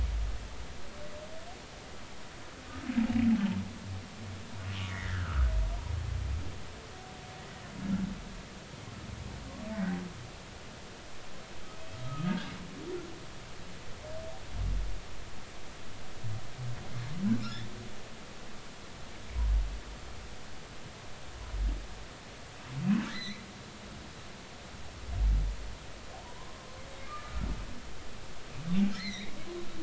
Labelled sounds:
4.8	5.5	humpback whale, 1.2 to 2.2 kHz
9.7	10.0	humpback whale, 1.8 to 2.0 kHz
12.0	12.5	humpback whale, 1.2 to 1.8 kHz
23.0	23.4	humpback whale, 1.5 to 4.2 kHz
26.4	27.4	humpback whale, 0.93 to 1.3 kHz
28.9	29.3	humpback whale, 1.7 to 4.3 kHz

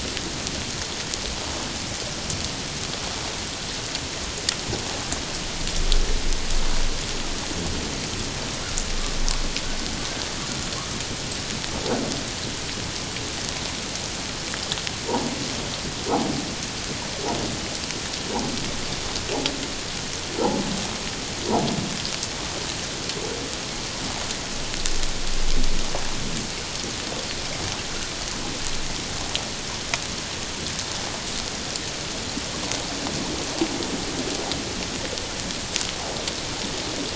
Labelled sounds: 20.4	20.6	humpback whale, 0.78 to 1.0 kHz

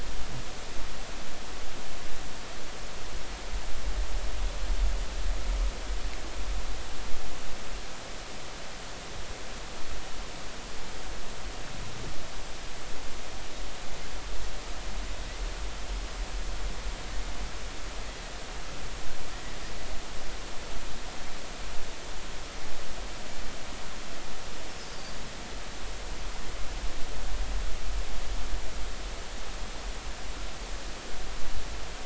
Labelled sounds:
24.8	25.2	Pacific white-sided dolphin, 4.5 to 5.0 kHz

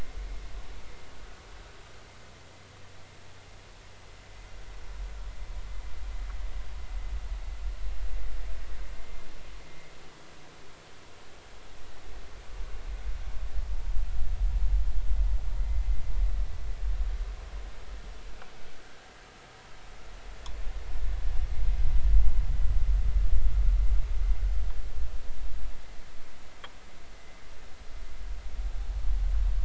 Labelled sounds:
15.6	15.8	vessel noise, 2.0 to 2.1 kHz

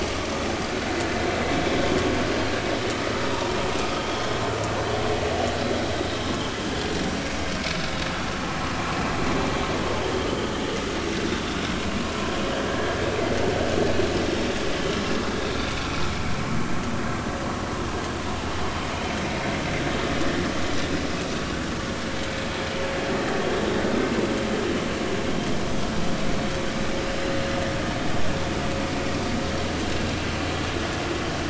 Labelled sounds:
3.3	3.5	vessel noise, 0.86 to 1.0 kHz
4.0	4.2	vessel noise, 3.1 to 3.4 kHz
12.7	13.2	vessel noise, 1.5 to 2.6 kHz
15.8	16.1	vessel noise, 2.4 to 2.6 kHz

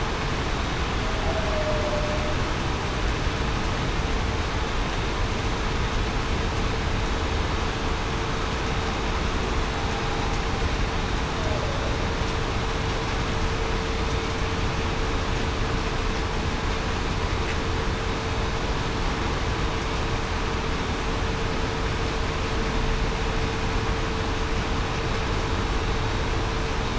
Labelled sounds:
1.4	1.9	humpback whale, 0.56 to 0.68 kHz

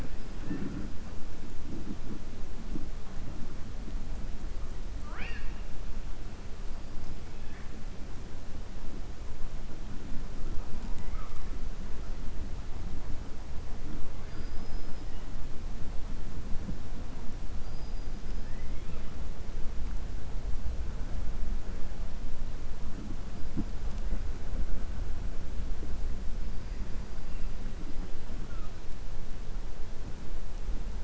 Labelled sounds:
14.2	15.0	killer whale, 4.2 to 5.2 kHz
18.4	19.1	killer whale, 0.50 to 3.5 kHz

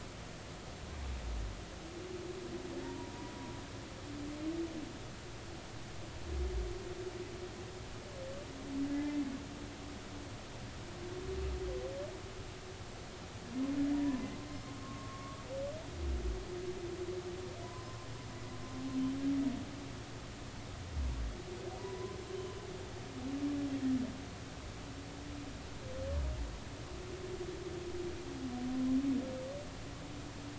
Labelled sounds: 2.8	3.3	humpback whale, 0.86 to 1.1 kHz
8.9	9.4	humpback whale, 1.5 to 2.2 kHz
13.9	14.3	humpback whale, 0.90 to 1.1 kHz
14.8	15.4	humpback whale, 1.0 to 1.2 kHz
17.6	18.1	humpback whale, 0.96 to 1.1 kHz
21.8	22.6	humpback whale, 0.90 to 3.1 kHz

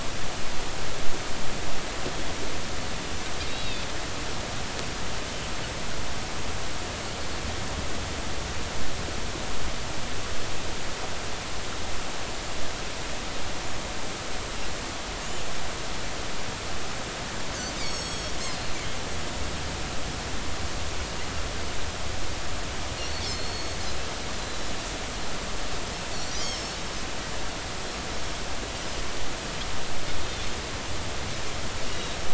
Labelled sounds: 3.5	3.9	Pacific white-sided dolphin, 3.4 to 4.0 kHz
17.8	18.3	Pacific white-sided dolphin, 3.3 to 7.8 kHz
23.0	23.8	Pacific white-sided dolphin, 4.1 to 6.7 kHz
24.4	24.7	Pacific white-sided dolphin, 3.9 to 4.1 kHz
26.3	26.8	Pacific white-sided dolphin, 4.3 to 6.9 kHz
31.9	32.2	Pacific white-sided dolphin, 3.7 to 3.9 kHz

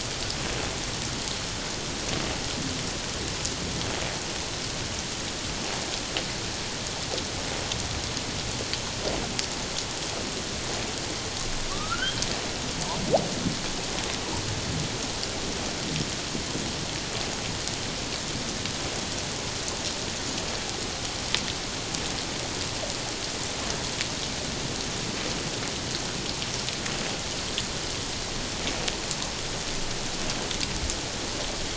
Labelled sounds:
11.7	12.2	humpback whale, 1.1 to 3.4 kHz

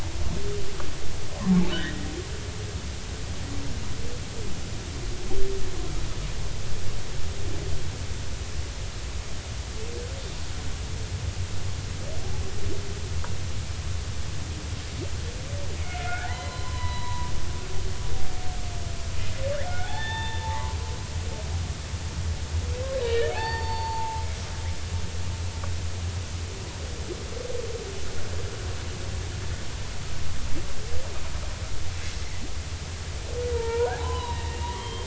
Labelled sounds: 1.7	2.1	humpback whale, 1.3 to 2.0 kHz
15.8	17.3	humpback whale, 0.80 to 4.1 kHz
19.7	20.8	humpback whale, 0.80 to 3.6 kHz
23.0	24.2	humpback whale, 0.80 to 4.6 kHz
32.1	32.4	humpback whale, 1.9 to 2.2 kHz
33.5	35.0	humpback whale, 0.80 to 3.3 kHz

